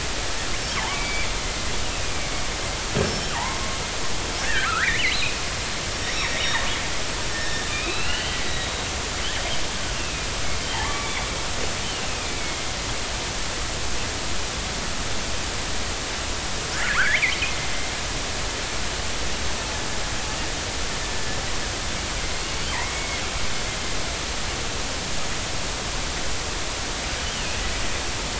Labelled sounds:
0.7	1.3	killer whale, northern resident, 0.80 to 3.3 kHz
1.9	2.2	killer whale, northern resident, 2.3 to 2.7 kHz
3.0	3.6	killer whale, northern resident, 0.80 to 5.5 kHz
4.4	5.3	killer whale, northern resident, 1.2 to 4.2 kHz
5.9	6.6	killer whale, northern resident, 1.8 to 5.7 kHz
7.3	8.7	killer whale, northern resident, 1.3 to 4.3 kHz
9.9	10.3	killer whale, northern resident, 2.4 to 2.8 kHz
10.8	11.3	killer whale, northern resident, 1.0 to 2.4 kHz
12.1	12.7	killer whale, northern resident, 2.0 to 2.6 kHz
16.7	17.3	killer whale, northern resident, 0.99 to 2.5 kHz
22.3	23.2	killer whale, northern resident, 2.1 to 4.4 kHz

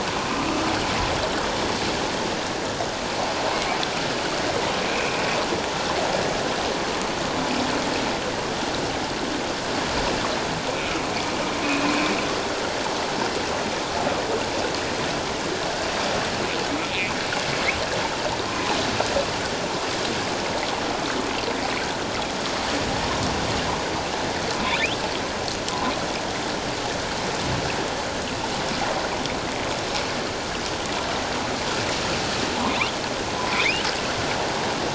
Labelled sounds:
4.9	5.2	humpback whale, 2.2 to 2.6 kHz
11.6	12.0	humpback whale, 2.2 to 2.7 kHz
16.8	17.1	humpback whale, 2.0 to 2.7 kHz
18.5	18.8	humpback whale, 0.81 to 1.2 kHz
33.4	33.6	humpback whale, 0.94 to 1.1 kHz

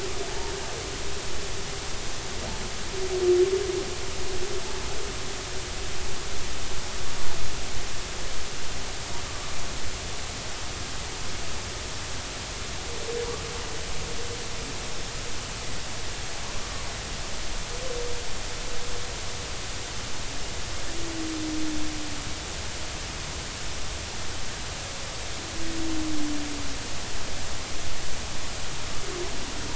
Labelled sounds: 0.3	0.5	humpback whale, 0.83 to 0.96 kHz

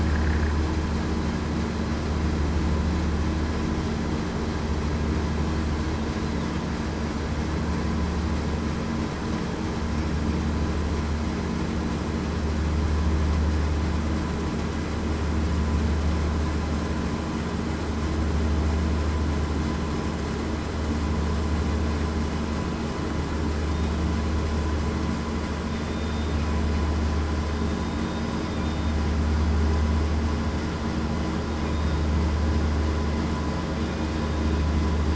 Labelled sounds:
25.8	26.4	killer whale, southern resident, 3.6 to 3.7 kHz
28.6	29.0	killer whale, southern resident, 3.6 to 3.7 kHz
31.7	32.1	killer whale, southern resident, 3.6 to 3.8 kHz

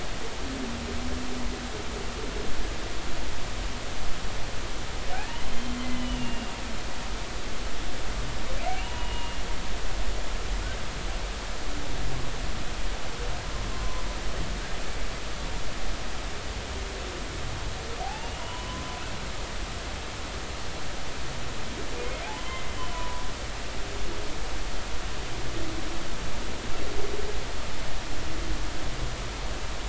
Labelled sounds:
5.1	5.4	humpback whale, 1.4 to 1.9 kHz
5.8	6.5	humpback whale, 2.0 to 3.1 kHz
8.8	9.4	humpback whale, 0.83 to 3.0 kHz
13.7	14.0	humpback whale, 0.96 to 1.1 kHz
18.0	18.9	humpback whale, 0.80 to 3.1 kHz
22.2	23.2	humpback whale, 0.80 to 3.2 kHz

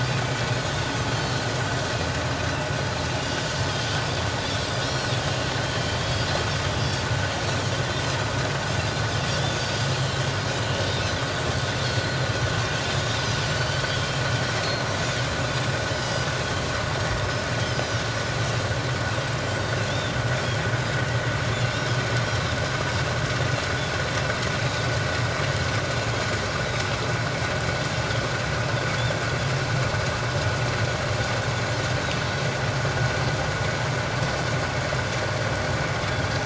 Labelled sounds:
0.7	1.4	Pacific white-sided dolphin, 3.1 to 4.4 kHz
3.1	3.4	Pacific white-sided dolphin, 2.8 to 3.0 kHz
4.8	5.2	Pacific white-sided dolphin, 4.1 to 4.4 kHz
5.6	7.0	Pacific white-sided dolphin, 3.0 to 5.0 kHz
9.3	10.2	Pacific white-sided dolphin, 3.2 to 4.3 kHz
10.8	12.2	Pacific white-sided dolphin, 3.4 to 4.4 kHz
13.0	14.2	Pacific white-sided dolphin, 3.0 to 7.7 kHz
15.9	16.6	Pacific white-sided dolphin, 2.9 to 5.2 kHz
17.6	18.0	Pacific white-sided dolphin, 2.9 to 5.3 kHz
19.9	20.1	Pacific white-sided dolphin, 3.2 to 3.7 kHz

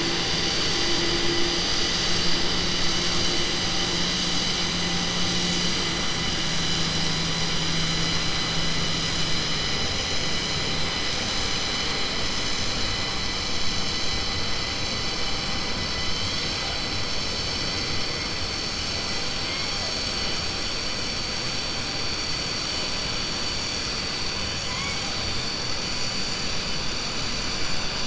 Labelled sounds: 24.6	25.1	killer whale, southern resident, 1.0 to 4.1 kHz

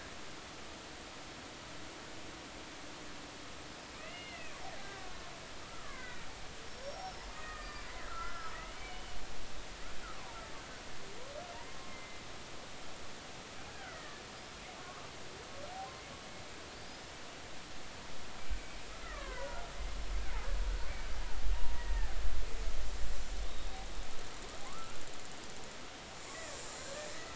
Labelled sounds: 3.9	4.6	killer whale, Bigg's (transient), 1.7 to 3.0 kHz
5.6	6.3	killer whale, Bigg's (transient), 1.2 to 2.2 kHz
6.7	9.2	killer whale, Bigg's (transient), 1.2 to 5.7 kHz
10.2	10.4	killer whale, Bigg's (transient), 0.86 to 1.2 kHz
11.9	12.2	killer whale, Bigg's (transient), 2.0 to 2.2 kHz
13.7	14.2	killer whale, Bigg's (transient), 1.2 to 2.1 kHz
14.8	15.1	killer whale, Bigg's (transient), 1.0 to 1.2 kHz
16.9	17.1	killer whale, Bigg's (transient), 4.8 to 5.3 kHz
18.6	19.7	killer whale, Bigg's (transient), 0.80 to 2.4 kHz
21.5	22.1	killer whale, Bigg's (transient), 0.90 to 2.0 kHz
23.5	23.8	killer whale, Bigg's (transient), 3.6 to 3.8 kHz
24.7	25.0	killer whale, Bigg's (transient), 0.99 to 1.5 kHz
26.3	26.6	killer whale, Bigg's (transient), 1.6 to 2.0 kHz

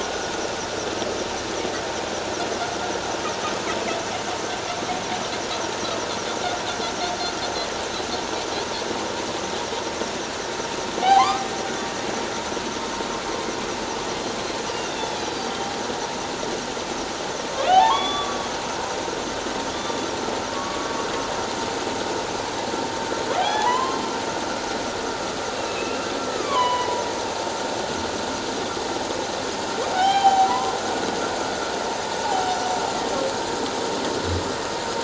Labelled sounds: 11.0	11.5	humpback whale, 0.78 to 3.3 kHz
14.8	15.6	humpback whale, 3.3 to 4.9 kHz
17.5	18.4	humpback whale, 0.78 to 3.9 kHz
19.7	20.9	humpback whale, 1.1 to 3.6 kHz
23.3	24.0	humpback whale, 0.78 to 3.5 kHz
25.6	27.0	humpback whale, 0.81 to 3.6 kHz
29.9	30.7	humpback whale, 0.78 to 5.6 kHz
32.2	32.8	humpback whale, 0.78 to 6.0 kHz

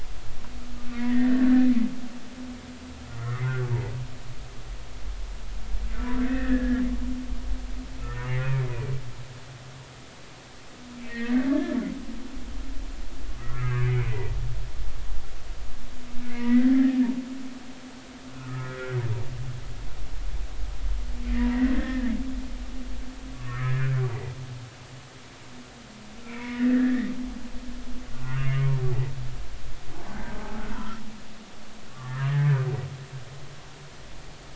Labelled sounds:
0.9	1.7	humpback whale, 1.7 to 2.1 kHz
3.2	3.7	humpback whale, 1.1 to 2.0 kHz
6.2	6.8	humpback whale, 1.4 to 2.1 kHz
11.0	11.8	humpback whale, 1.6 to 2.7 kHz
13.4	14.4	humpback whale, 1.2 to 2.4 kHz
16.4	17.1	humpback whale, 1.6 to 2.1 kHz
18.4	19.0	humpback whale, 1.2 to 1.8 kHz
21.4	22.1	humpback whale, 0.90 to 2.0 kHz
23.3	24.0	humpback whale, 1.0 to 1.9 kHz
26.2	27.1	humpback whale, 0.93 to 2.5 kHz
28.2	28.6	humpback whale, 0.99 to 2.9 kHz
30.1	31.0	humpback whale, 0.80 to 1.6 kHz
32.0	32.5	humpback whale, 1.2 to 2.0 kHz

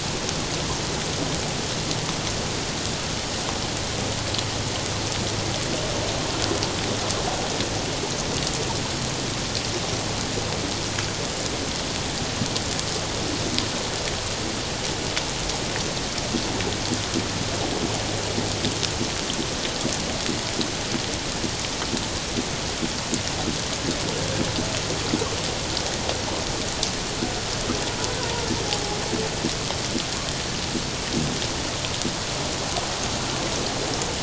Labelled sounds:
28.2	28.5	humpback whale, 0.88 to 1.1 kHz

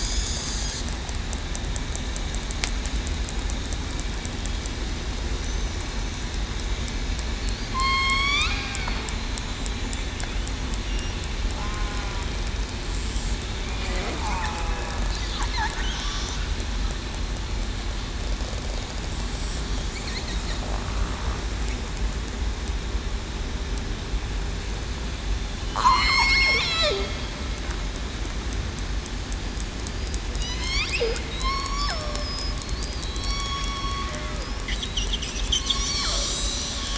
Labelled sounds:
7.7	8.9	killer whale, southern resident, 0.98 to 4.8 kHz
11.6	12.0	killer whale, southern resident, 1.0 to 1.1 kHz
14.2	14.7	killer whale, southern resident, 0.82 to 1.2 kHz
25.6	26.0	killer whale, southern resident, 3.0 to 3.2 kHz
26.6	27.1	killer whale, southern resident, 0.38 to 0.68 kHz
30.4	30.8	killer whale, southern resident, 1.9 to 5.9 kHz
32.2	32.5	killer whale, southern resident, 5.0 to 5.3 kHz
33.0	34.5	killer whale, southern resident, 0.49 to 5.6 kHz

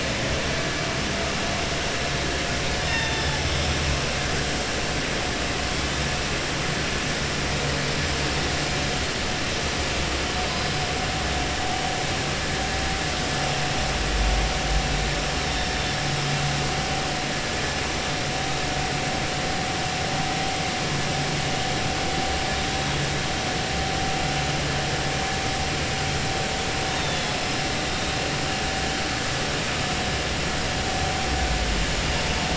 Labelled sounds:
2.8	3.3	killer whale, southern resident, 0.87 to 6.2 kHz

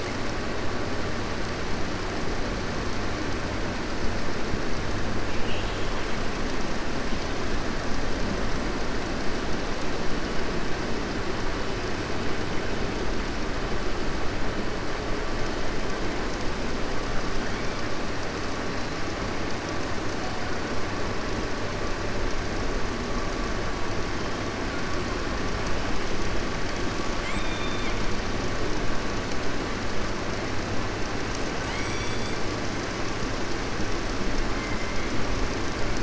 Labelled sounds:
5.3	6.1	killer whale, 2.3 to 4.1 kHz
27.1	28.0	killer whale, 1.4 to 3.7 kHz
31.6	32.4	killer whale, 1.5 to 5.8 kHz

